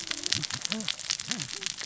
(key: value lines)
label: biophony, cascading saw
recorder: SoundTrap 600 or HydroMoth